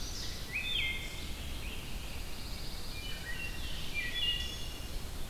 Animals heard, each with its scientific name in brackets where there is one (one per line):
Pine Warbler (Setophaga pinus)
Red-eyed Vireo (Vireo olivaceus)
Wood Thrush (Hylocichla mustelina)